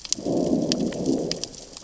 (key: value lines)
label: biophony, growl
recorder: SoundTrap 600 or HydroMoth